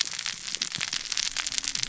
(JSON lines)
{"label": "biophony, cascading saw", "recorder": "SoundTrap 600 or HydroMoth"}